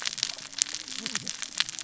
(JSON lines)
{"label": "biophony, cascading saw", "recorder": "SoundTrap 600 or HydroMoth"}